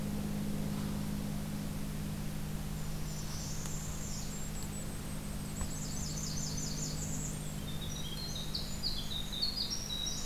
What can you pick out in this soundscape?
Golden-crowned Kinglet, Northern Parula, Blackburnian Warbler, Winter Wren